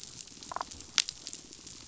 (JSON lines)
{"label": "biophony", "recorder": "SoundTrap 500"}
{"label": "biophony, damselfish", "recorder": "SoundTrap 500"}